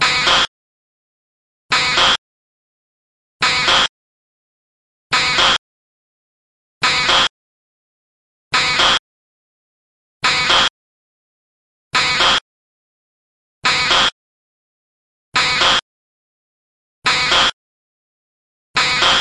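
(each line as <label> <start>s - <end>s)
An alarm is beeping repeatedly. 0.0s - 19.2s
An electronic alarm is beeping. 0.0s - 19.2s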